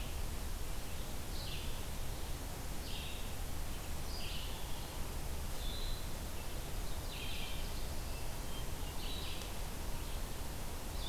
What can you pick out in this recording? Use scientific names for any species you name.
Vireo olivaceus, Seiurus aurocapilla, Catharus guttatus